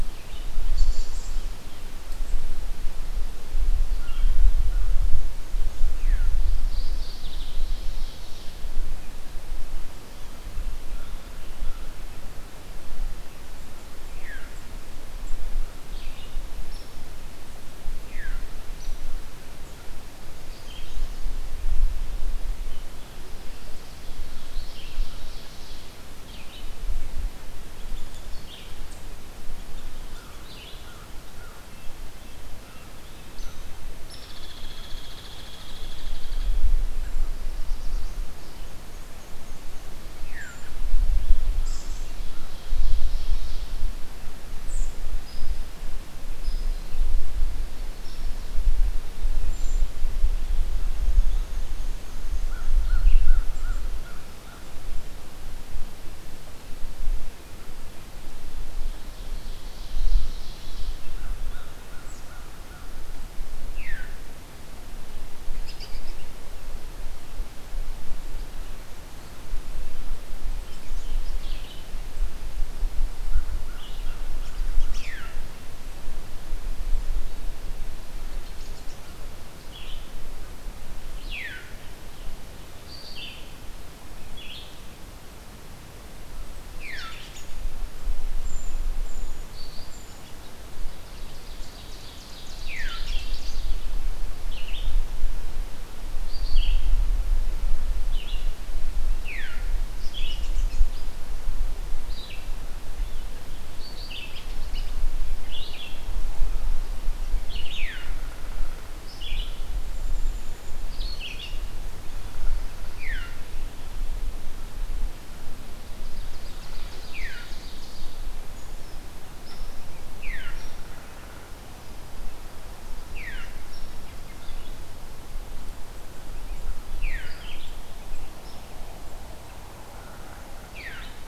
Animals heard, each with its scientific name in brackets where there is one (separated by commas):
unidentified call, Veery (Catharus fuscescens), Ovenbird (Seiurus aurocapilla), American Robin (Turdus migratorius), Black-and-white Warbler (Mniotilta varia), Red-breasted Nuthatch (Sitta canadensis), Hairy Woodpecker (Dryobates villosus), Brown Creeper (Certhia americana), Mourning Warbler (Geothlypis philadelphia), Scarlet Tanager (Piranga olivacea), Red-eyed Vireo (Vireo olivaceus), American Crow (Corvus brachyrhynchos), Black-throated Blue Warbler (Setophaga caerulescens)